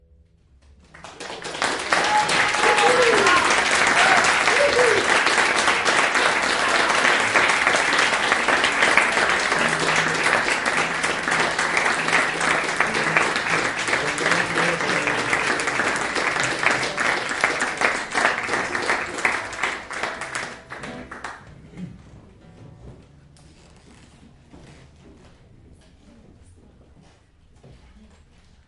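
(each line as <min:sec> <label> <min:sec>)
0:01.0 Spectators are continuously cheering and chanting while music plays in the background. 0:21.7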